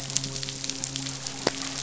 {"label": "biophony, midshipman", "recorder": "SoundTrap 500"}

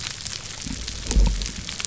{"label": "biophony", "recorder": "SoundTrap 300"}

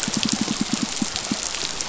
{"label": "biophony, pulse", "recorder": "SoundTrap 500"}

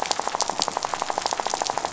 {"label": "biophony, rattle", "recorder": "SoundTrap 500"}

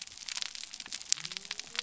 {"label": "biophony", "recorder": "SoundTrap 300"}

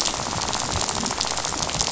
{"label": "biophony, rattle", "recorder": "SoundTrap 500"}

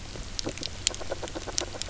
{"label": "biophony, grazing", "recorder": "SoundTrap 300"}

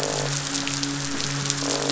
{"label": "biophony, midshipman", "recorder": "SoundTrap 500"}
{"label": "biophony, croak", "recorder": "SoundTrap 500"}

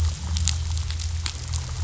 {"label": "anthrophony, boat engine", "recorder": "SoundTrap 500"}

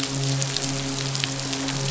{"label": "biophony, midshipman", "recorder": "SoundTrap 500"}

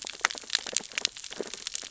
{"label": "biophony, sea urchins (Echinidae)", "recorder": "SoundTrap 600 or HydroMoth"}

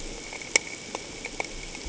{"label": "ambient", "recorder": "HydroMoth"}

